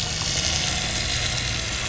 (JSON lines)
{"label": "anthrophony, boat engine", "recorder": "SoundTrap 500"}